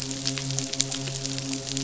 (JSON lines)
{"label": "biophony, midshipman", "recorder": "SoundTrap 500"}